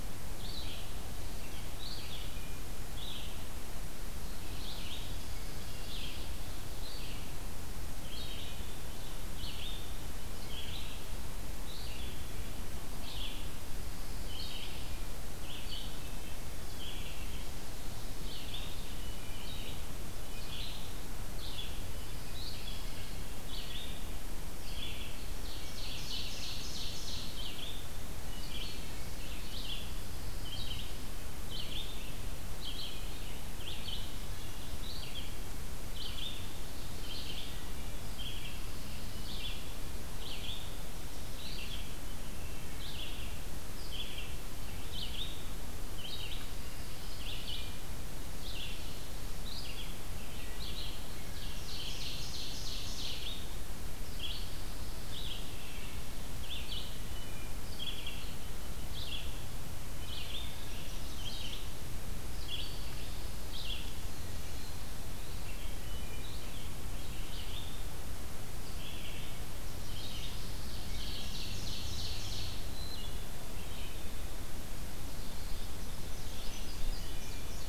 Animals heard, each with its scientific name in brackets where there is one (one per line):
Indigo Bunting (Passerina cyanea)
Wood Thrush (Hylocichla mustelina)
Ovenbird (Seiurus aurocapilla)
Red-eyed Vireo (Vireo olivaceus)
Pine Warbler (Setophaga pinus)